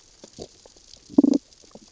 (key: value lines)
label: biophony, damselfish
recorder: SoundTrap 600 or HydroMoth